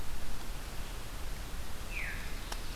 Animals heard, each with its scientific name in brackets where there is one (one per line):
Veery (Catharus fuscescens)
Ovenbird (Seiurus aurocapilla)